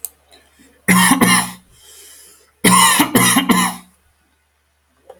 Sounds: Cough